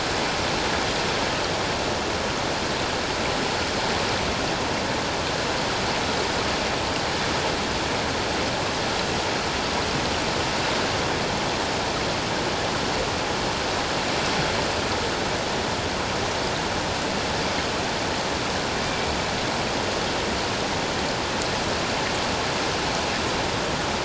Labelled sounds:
18.8	19.1	Pacific white-sided dolphin, 2.2 to 2.4 kHz

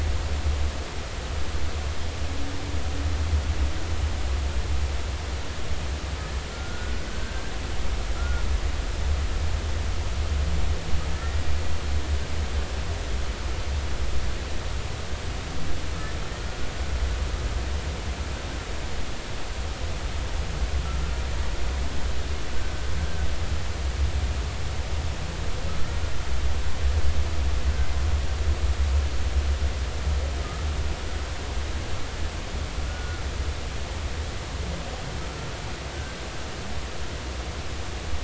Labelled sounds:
6.5	7.5	humpback whale, 1.3 to 1.7 kHz
8.2	8.4	humpback whale, 1.3 to 1.5 kHz
11.1	11.4	humpback whale, 1.7 to 1.9 kHz
32.9	33.2	humpback whale, 1.3 to 1.5 kHz

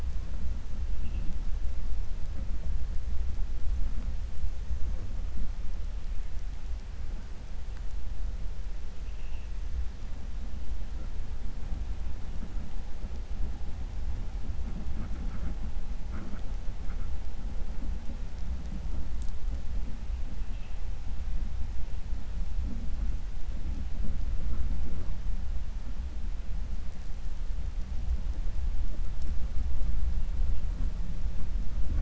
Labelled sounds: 8.9	9.5	vessel noise, 2.5 to 3.2 kHz

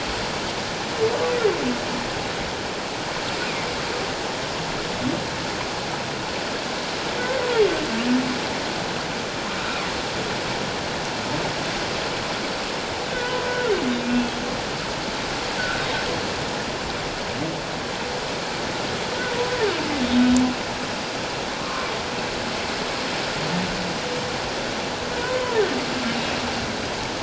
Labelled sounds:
13.5	14.4	humpback whale, 1.3 to 3.5 kHz
15.6	15.9	humpback whale, 1.3 to 1.6 kHz
21.6	21.9	humpback whale, 1.0 to 1.3 kHz
25.2	25.6	humpback whale, 0.84 to 1.1 kHz

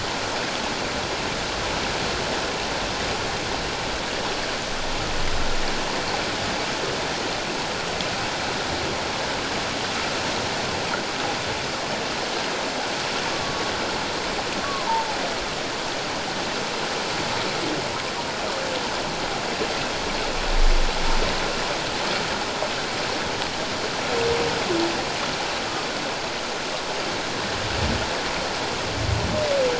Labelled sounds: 13.3	13.6	humpback whale, 1.1 to 1.2 kHz
14.6	15.2	humpback whale, 0.78 to 1.2 kHz

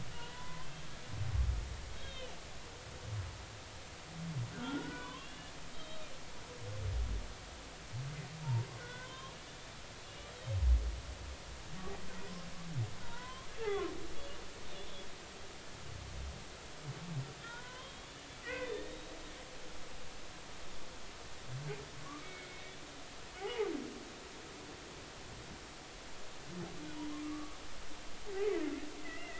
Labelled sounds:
0.1	0.8	humpback whale, 0.90 to 3.3 kHz
1.9	2.3	humpback whale, 2.9 to 3.8 kHz
4.5	6.1	humpback whale, 0.96 to 3.9 kHz
8.8	9.3	humpback whale, 0.96 to 3.6 kHz
10.0	10.3	humpback whale, 2.8 to 3.0 kHz
13.0	13.9	humpback whale, 0.90 to 1.6 kHz
17.4	19.1	humpback whale, 0.90 to 3.9 kHz
22.0	22.6	humpback whale, 1.0 to 2.3 kHz
23.4	23.7	humpback whale, 0.80 to 0.99 kHz
27.2	27.6	humpback whale, 1.1 to 1.3 kHz
29.0	29.3	humpback whale, 1.9 to 2.1 kHz

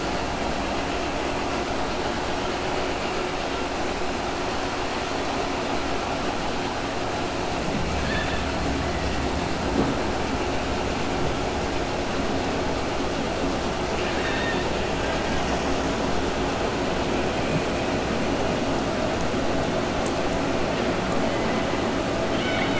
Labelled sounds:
7.9	8.4	killer whale, 1.6 to 4.5 kHz
13.9	14.7	killer whale, 1.5 to 4.5 kHz

